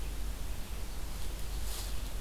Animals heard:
forest ambience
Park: Marsh-Billings-Rockefeller National Historical Park